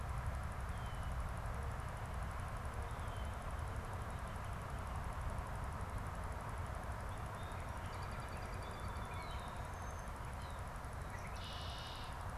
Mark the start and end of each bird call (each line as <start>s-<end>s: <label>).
7.7s-9.3s: American Robin (Turdus migratorius)
11.0s-12.3s: Red-winged Blackbird (Agelaius phoeniceus)